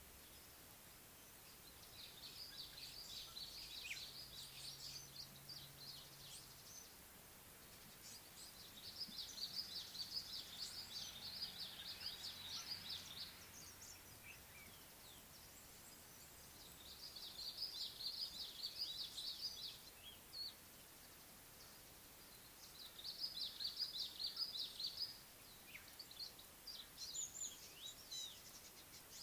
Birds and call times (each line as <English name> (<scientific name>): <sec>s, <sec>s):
African Black-headed Oriole (Oriolus larvatus): 3.9s, 25.7s
Red-faced Crombec (Sylvietta whytii): 10.9s, 18.5s, 24.0s
Common Bulbul (Pycnonotus barbatus): 14.3s
African Gray Flycatcher (Bradornis microrhynchus): 27.3s